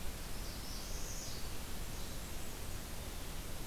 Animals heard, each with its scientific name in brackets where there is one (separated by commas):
Blackburnian Warbler (Setophaga fusca), Northern Parula (Setophaga americana)